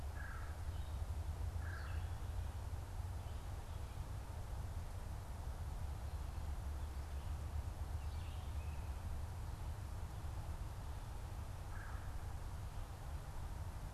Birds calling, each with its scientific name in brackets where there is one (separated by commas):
Red-eyed Vireo (Vireo olivaceus), Red-bellied Woodpecker (Melanerpes carolinus)